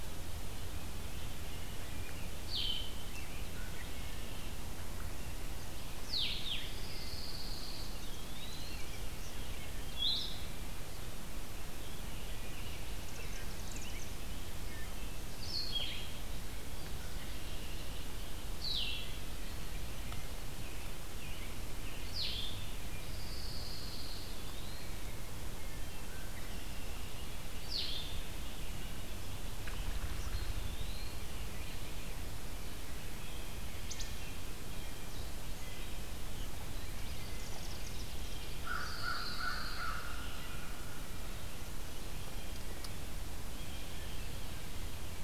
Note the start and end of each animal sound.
2.4s-2.9s: Blue-headed Vireo (Vireo solitarius)
3.4s-4.6s: Red-winged Blackbird (Agelaius phoeniceus)
6.0s-10.5s: Blue-headed Vireo (Vireo solitarius)
6.4s-8.3s: Pine Warbler (Setophaga pinus)
7.6s-10.2s: Rose-breasted Grosbeak (Pheucticus ludovicianus)
7.6s-9.0s: Eastern Wood-Pewee (Contopus virens)
7.7s-9.3s: Chimney Swift (Chaetura pelagica)
11.7s-14.6s: Rose-breasted Grosbeak (Pheucticus ludovicianus)
13.0s-14.2s: Chimney Swift (Chaetura pelagica)
14.6s-15.1s: Wood Thrush (Hylocichla mustelina)
15.4s-22.6s: Blue-headed Vireo (Vireo solitarius)
16.9s-18.1s: Red-winged Blackbird (Agelaius phoeniceus)
20.4s-23.1s: American Robin (Turdus migratorius)
22.8s-24.6s: Pine Warbler (Setophaga pinus)
24.0s-25.0s: Eastern Wood-Pewee (Contopus virens)
25.5s-26.2s: Wood Thrush (Hylocichla mustelina)
26.0s-27.3s: Red-winged Blackbird (Agelaius phoeniceus)
27.6s-28.2s: Blue-headed Vireo (Vireo solitarius)
30.3s-31.3s: Eastern Wood-Pewee (Contopus virens)
33.8s-34.1s: Wood Thrush (Hylocichla mustelina)
35.5s-36.0s: Wood Thrush (Hylocichla mustelina)
36.8s-38.7s: Chimney Swift (Chaetura pelagica)
38.5s-40.0s: Pine Warbler (Setophaga pinus)
38.5s-40.8s: American Crow (Corvus brachyrhynchos)
43.4s-44.2s: Blue Jay (Cyanocitta cristata)

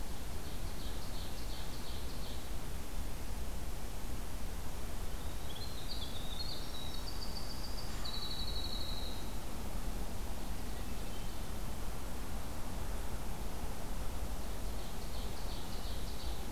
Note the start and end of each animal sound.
0.3s-2.5s: Ovenbird (Seiurus aurocapilla)
5.2s-9.3s: Winter Wren (Troglodytes hiemalis)
10.5s-11.6s: Hermit Thrush (Catharus guttatus)
14.4s-16.5s: Ovenbird (Seiurus aurocapilla)

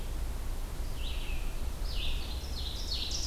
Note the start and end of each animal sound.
0.0s-3.3s: Red-eyed Vireo (Vireo olivaceus)
2.3s-3.3s: Ovenbird (Seiurus aurocapilla)

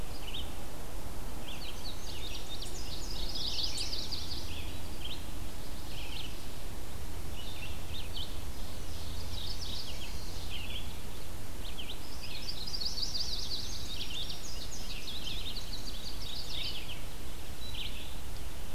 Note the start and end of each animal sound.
0.0s-8.4s: Red-eyed Vireo (Vireo olivaceus)
1.3s-4.4s: Indigo Bunting (Passerina cyanea)
2.9s-4.7s: Yellow-rumped Warbler (Setophaga coronata)
8.4s-10.1s: Ovenbird (Seiurus aurocapilla)
9.0s-10.2s: Mourning Warbler (Geothlypis philadelphia)
10.4s-18.7s: Red-eyed Vireo (Vireo olivaceus)
12.4s-14.1s: Yellow-rumped Warbler (Setophaga coronata)
13.5s-16.5s: Indigo Bunting (Passerina cyanea)
15.9s-17.2s: Mourning Warbler (Geothlypis philadelphia)

